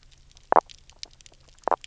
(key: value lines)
label: biophony
recorder: SoundTrap 300